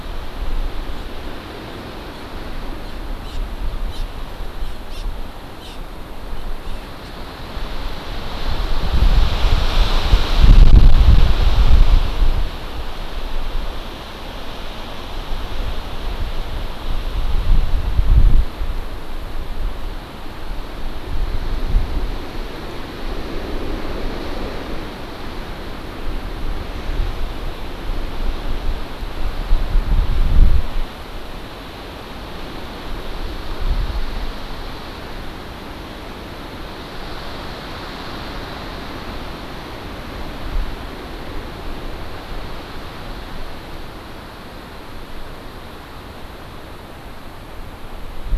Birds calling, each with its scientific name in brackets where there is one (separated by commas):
Hawaii Amakihi (Chlorodrepanis virens)